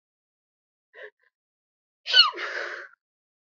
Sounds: Sneeze